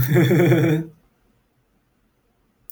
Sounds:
Laughter